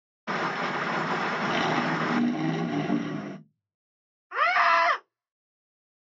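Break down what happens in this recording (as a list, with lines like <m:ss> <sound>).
0:00 the sound of rain on a surface
0:01 an engine accelerates
0:04 someone screams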